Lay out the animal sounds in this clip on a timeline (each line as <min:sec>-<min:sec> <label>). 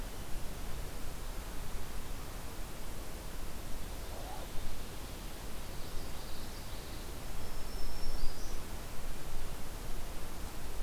0:05.5-0:07.1 Common Yellowthroat (Geothlypis trichas)
0:07.2-0:08.8 Black-throated Green Warbler (Setophaga virens)